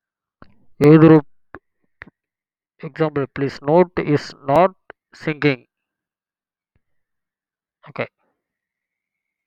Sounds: Sigh